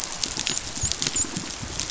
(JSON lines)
{"label": "biophony, dolphin", "recorder": "SoundTrap 500"}